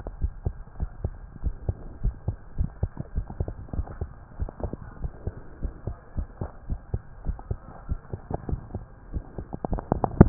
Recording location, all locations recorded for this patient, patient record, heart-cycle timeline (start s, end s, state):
tricuspid valve (TV)
aortic valve (AV)+pulmonary valve (PV)+tricuspid valve (TV)+mitral valve (MV)
#Age: Child
#Sex: Male
#Height: 108.0 cm
#Weight: 18.0 kg
#Pregnancy status: False
#Murmur: Absent
#Murmur locations: nan
#Most audible location: nan
#Systolic murmur timing: nan
#Systolic murmur shape: nan
#Systolic murmur grading: nan
#Systolic murmur pitch: nan
#Systolic murmur quality: nan
#Diastolic murmur timing: nan
#Diastolic murmur shape: nan
#Diastolic murmur grading: nan
#Diastolic murmur pitch: nan
#Diastolic murmur quality: nan
#Outcome: Normal
#Campaign: 2015 screening campaign
0.00	0.18	unannotated
0.18	0.32	S1
0.32	0.44	systole
0.44	0.54	S2
0.54	0.80	diastole
0.80	0.90	S1
0.90	1.02	systole
1.02	1.16	S2
1.16	1.44	diastole
1.44	1.56	S1
1.56	1.64	systole
1.64	1.78	S2
1.78	2.02	diastole
2.02	2.16	S1
2.16	2.26	systole
2.26	2.38	S2
2.38	2.58	diastole
2.58	2.72	S1
2.72	2.82	systole
2.82	2.92	S2
2.92	3.16	diastole
3.16	3.26	S1
3.26	3.36	systole
3.36	3.48	S2
3.48	3.74	diastole
3.74	3.88	S1
3.88	4.00	systole
4.00	4.10	S2
4.10	4.38	diastole
4.38	4.50	S1
4.50	4.60	systole
4.60	4.72	S2
4.72	5.02	diastole
5.02	5.14	S1
5.14	5.26	systole
5.26	5.34	S2
5.34	5.60	diastole
5.60	5.74	S1
5.74	5.86	systole
5.86	5.96	S2
5.96	6.18	diastole
6.18	6.28	S1
6.28	6.42	systole
6.42	6.50	S2
6.50	6.70	diastole
6.70	6.82	S1
6.82	6.90	systole
6.90	7.00	S2
7.00	7.26	diastole
7.26	7.40	S1
7.40	7.50	systole
7.50	7.60	S2
7.60	7.88	diastole
7.88	8.00	S1
8.00	8.10	systole
8.10	8.20	S2
8.20	8.48	diastole
8.48	8.62	S1
8.62	8.72	systole
8.72	8.84	S2
8.84	9.12	diastole
9.12	9.24	S1
9.24	9.36	systole
9.36	9.46	S2
9.46	9.70	diastole
9.70	9.84	S1
9.84	10.29	unannotated